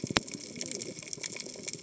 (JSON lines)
{"label": "biophony, cascading saw", "recorder": "HydroMoth"}